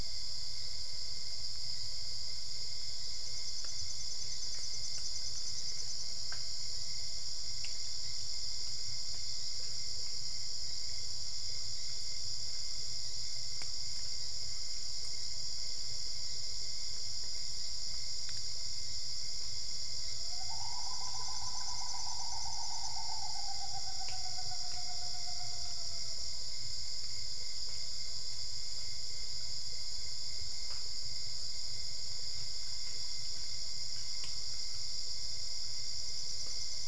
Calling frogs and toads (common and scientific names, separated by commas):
none